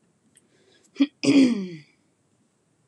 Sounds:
Throat clearing